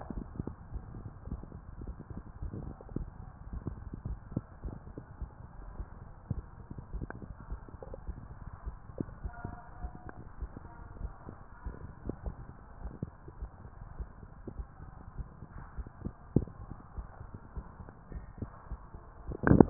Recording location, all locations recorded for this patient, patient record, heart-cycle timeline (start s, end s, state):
mitral valve (MV)
aortic valve (AV)+pulmonary valve (PV)+tricuspid valve (TV)+mitral valve (MV)
#Age: nan
#Sex: Female
#Height: nan
#Weight: nan
#Pregnancy status: True
#Murmur: Absent
#Murmur locations: nan
#Most audible location: nan
#Systolic murmur timing: nan
#Systolic murmur shape: nan
#Systolic murmur grading: nan
#Systolic murmur pitch: nan
#Systolic murmur quality: nan
#Diastolic murmur timing: nan
#Diastolic murmur shape: nan
#Diastolic murmur grading: nan
#Diastolic murmur pitch: nan
#Diastolic murmur quality: nan
#Outcome: Normal
#Campaign: 2015 screening campaign
0.00	9.56	unannotated
9.56	9.80	diastole
9.80	9.92	S1
9.92	10.36	systole
10.36	10.50	S2
10.50	10.98	diastole
10.98	11.14	S1
11.14	11.64	systole
11.64	11.78	S2
11.78	12.24	diastole
12.24	12.36	S1
12.36	12.80	systole
12.80	12.94	S2
12.94	13.38	diastole
13.38	13.50	S1
13.50	13.96	systole
13.96	14.08	S2
14.08	14.54	diastole
14.54	14.68	S1
14.68	15.18	systole
15.18	15.32	S2
15.32	15.74	diastole
15.74	15.88	S1
15.88	16.36	systole
16.36	16.52	S2
16.52	16.96	diastole
16.96	17.06	S1
17.06	17.53	systole
17.53	17.65	S2
17.65	18.11	diastole
18.11	19.70	unannotated